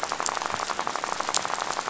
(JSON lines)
{"label": "biophony, rattle", "recorder": "SoundTrap 500"}